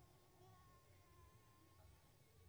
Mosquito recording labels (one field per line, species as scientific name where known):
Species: Anopheles coustani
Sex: female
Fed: unfed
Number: one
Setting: cup